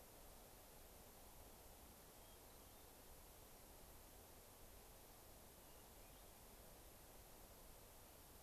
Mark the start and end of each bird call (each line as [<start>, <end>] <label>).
[2.14, 3.04] Hermit Thrush (Catharus guttatus)
[5.44, 6.54] Hermit Thrush (Catharus guttatus)